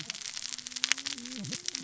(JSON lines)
{"label": "biophony, cascading saw", "recorder": "SoundTrap 600 or HydroMoth"}